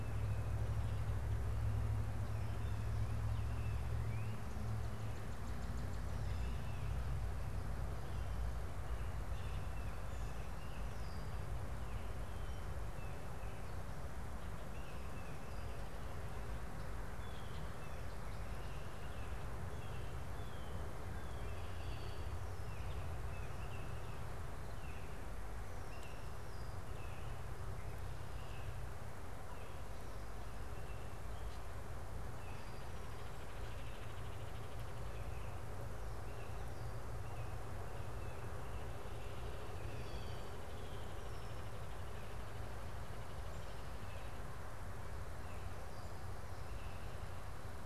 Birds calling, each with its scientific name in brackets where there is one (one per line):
Blue Jay (Cyanocitta cristata)
Baltimore Oriole (Icterus galbula)
Northern Cardinal (Cardinalis cardinalis)